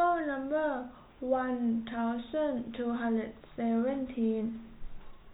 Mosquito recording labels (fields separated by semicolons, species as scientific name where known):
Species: no mosquito; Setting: cup